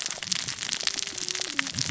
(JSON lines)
{"label": "biophony, cascading saw", "recorder": "SoundTrap 600 or HydroMoth"}